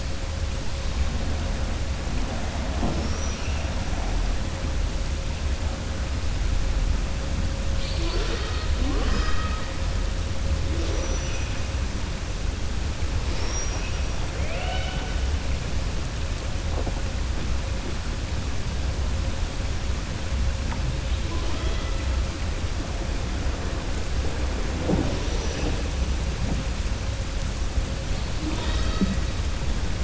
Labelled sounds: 10.7	11.4	killer whale, southern resident, 3.9 to 6.1 kHz
14.3	15.2	killer whale, southern resident, 0.53 to 4.5 kHz

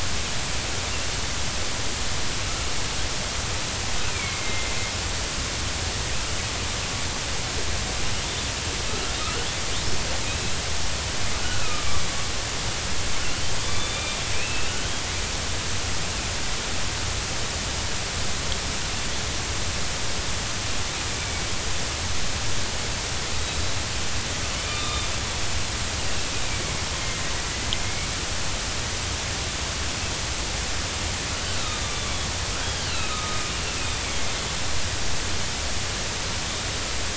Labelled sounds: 4.1	4.8	killer whale, northern resident, 2.0 to 2.5 kHz
9.2	9.5	killer whale, northern resident, 1.2 to 1.5 kHz
10.2	10.5	killer whale, northern resident, 2.4 to 2.7 kHz
11.4	12.0	killer whale, northern resident, 1.1 to 2.7 kHz
13.7	14.7	killer whale, northern resident, 2.3 to 3.6 kHz
23.4	23.7	killer whale, northern resident, 3.7 to 4.0 kHz
24.7	26.1	killer whale, northern resident, 1.1 to 3.9 kHz
27.8	28.1	killer whale, northern resident, 2.1 to 2.3 kHz
31.6	33.4	killer whale, northern resident, 1.2 to 4.0 kHz
33.9	34.2	killer whale, northern resident, 3.2 to 3.7 kHz

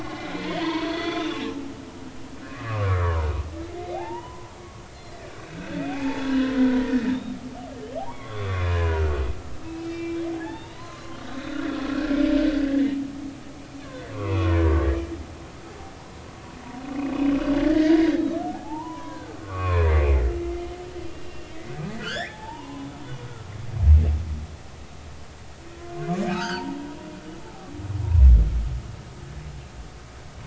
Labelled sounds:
0.0	1.8	humpback whale, 0.80 to 4.6 kHz
2.4	7.4	humpback whale, 0.80 to 4.3 kHz
8.0	9.1	humpback whale, 0.80 to 3.7 kHz
9.6	11.7	humpback whale, 0.80 to 4.2 kHz
13.8	14.8	humpback whale, 0.93 to 2.7 kHz
17.0	19.9	humpback whale, 0.80 to 3.9 kHz
21.1	23.5	humpback whale, 0.80 to 3.8 kHz
26.3	26.8	humpback whale, 0.83 to 5.1 kHz

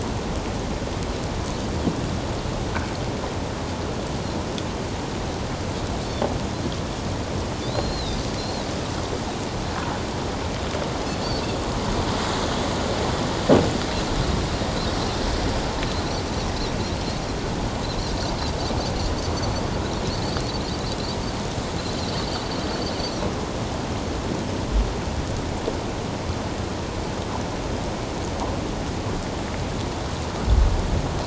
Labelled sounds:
7.6	8.7	Pacific white-sided dolphin, 3.4 to 4.3 kHz

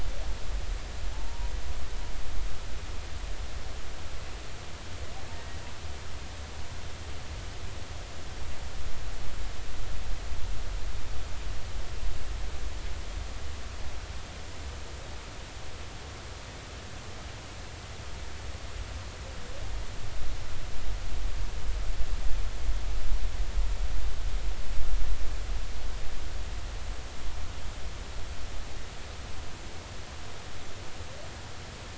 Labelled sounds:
1.1	1.5	humpback whale, 0.80 to 1.0 kHz
5.3	5.6	humpback whale, 1.8 to 2.0 kHz

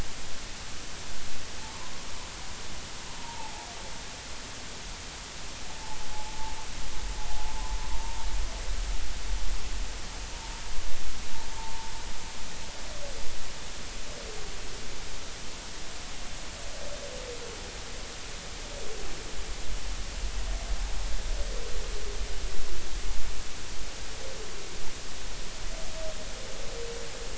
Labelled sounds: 3.2	3.7	humpback whale, 0.80 to 0.99 kHz

